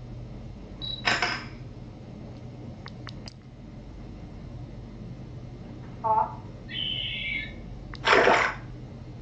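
At 0.79 seconds, you can hear a camera. At 6.03 seconds, someone says "off." At 6.67 seconds, bird vocalization is audible. At 8.03 seconds, there is the sound of water. A soft, steady noise lies in the background.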